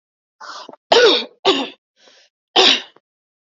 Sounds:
Throat clearing